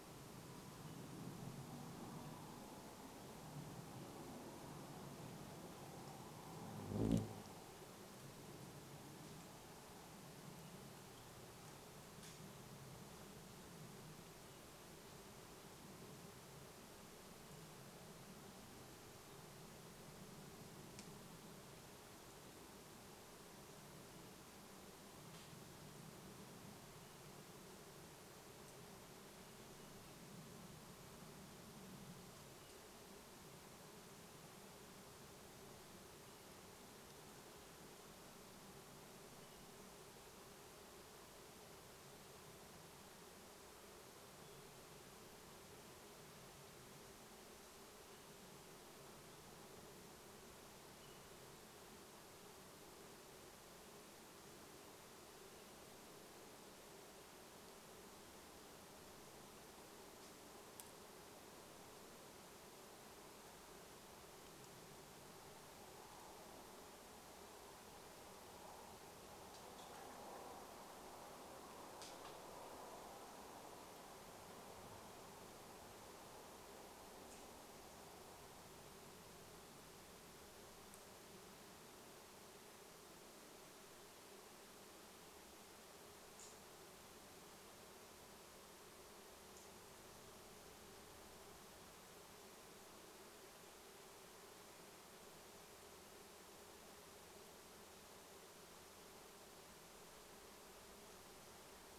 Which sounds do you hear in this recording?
airplane, insect buzz, gunshot, unidentified bird chip note